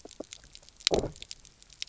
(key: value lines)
label: biophony, low growl
recorder: SoundTrap 300